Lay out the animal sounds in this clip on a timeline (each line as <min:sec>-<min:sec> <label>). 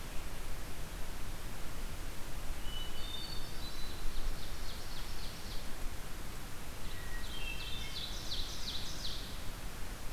0:02.7-0:04.1 Hermit Thrush (Catharus guttatus)
0:03.7-0:05.6 Ovenbird (Seiurus aurocapilla)
0:06.7-0:08.0 Hermit Thrush (Catharus guttatus)
0:07.1-0:09.5 Ovenbird (Seiurus aurocapilla)